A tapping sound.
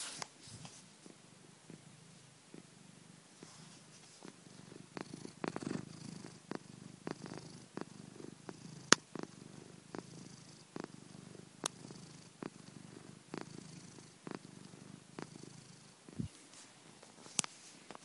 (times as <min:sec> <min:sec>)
0:00.2 0:00.3, 0:17.4 0:17.5